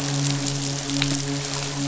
{"label": "biophony, midshipman", "recorder": "SoundTrap 500"}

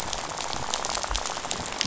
{"label": "biophony, rattle", "recorder": "SoundTrap 500"}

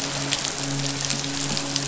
{"label": "biophony, midshipman", "recorder": "SoundTrap 500"}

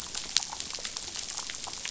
{"label": "biophony, damselfish", "recorder": "SoundTrap 500"}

